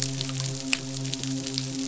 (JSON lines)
{"label": "biophony, midshipman", "recorder": "SoundTrap 500"}